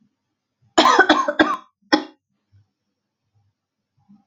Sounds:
Cough